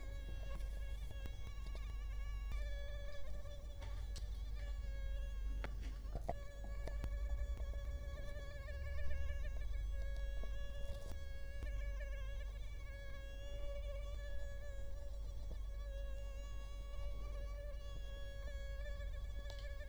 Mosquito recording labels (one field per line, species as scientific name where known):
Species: Culex quinquefasciatus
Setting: cup